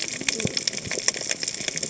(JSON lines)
{"label": "biophony, cascading saw", "recorder": "HydroMoth"}